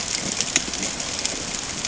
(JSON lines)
{"label": "ambient", "recorder": "HydroMoth"}